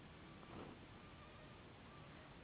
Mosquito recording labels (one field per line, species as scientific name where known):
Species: Anopheles gambiae s.s.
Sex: female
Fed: unfed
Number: one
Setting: insect culture